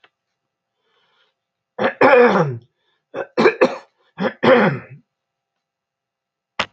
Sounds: Throat clearing